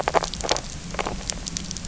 {"label": "biophony, grazing", "recorder": "SoundTrap 300"}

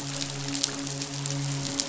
{"label": "biophony, midshipman", "recorder": "SoundTrap 500"}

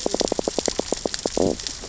{"label": "biophony, stridulation", "recorder": "SoundTrap 600 or HydroMoth"}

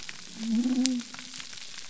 {"label": "biophony", "recorder": "SoundTrap 300"}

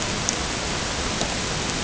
{"label": "ambient", "recorder": "HydroMoth"}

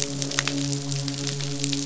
{"label": "biophony, midshipman", "recorder": "SoundTrap 500"}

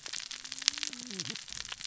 {"label": "biophony, cascading saw", "recorder": "SoundTrap 600 or HydroMoth"}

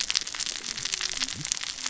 {"label": "biophony, cascading saw", "recorder": "SoundTrap 600 or HydroMoth"}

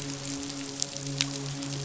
{"label": "biophony, midshipman", "recorder": "SoundTrap 500"}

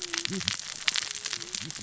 {"label": "biophony, cascading saw", "recorder": "SoundTrap 600 or HydroMoth"}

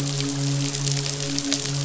{"label": "biophony, midshipman", "recorder": "SoundTrap 500"}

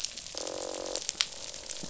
{"label": "biophony, croak", "recorder": "SoundTrap 500"}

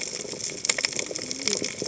{"label": "biophony, cascading saw", "recorder": "HydroMoth"}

